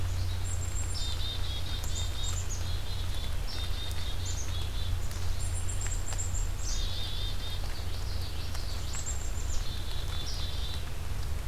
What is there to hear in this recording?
Black-capped Chickadee, Common Yellowthroat